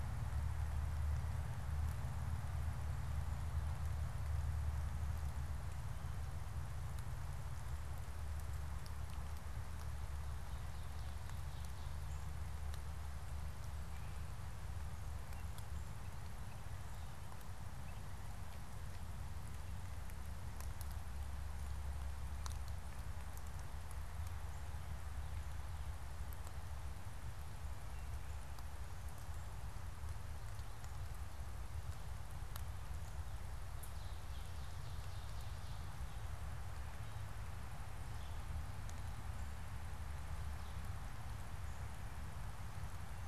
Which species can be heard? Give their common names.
Ovenbird